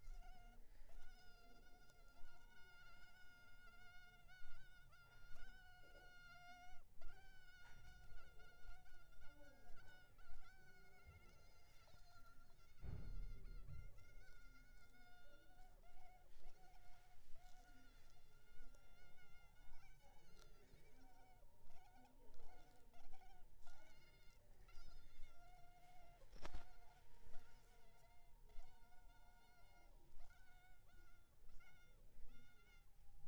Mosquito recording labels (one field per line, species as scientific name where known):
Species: Culex pipiens complex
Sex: male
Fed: unfed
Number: one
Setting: cup